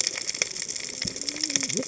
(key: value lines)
label: biophony, cascading saw
recorder: HydroMoth